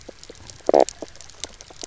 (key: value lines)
label: biophony, knock croak
recorder: SoundTrap 300